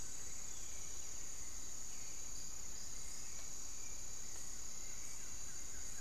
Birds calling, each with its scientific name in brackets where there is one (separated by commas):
Buff-throated Woodcreeper (Xiphorhynchus guttatus), Long-winged Antwren (Myrmotherula longipennis), Hauxwell's Thrush (Turdus hauxwelli)